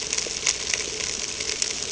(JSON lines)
{"label": "ambient", "recorder": "HydroMoth"}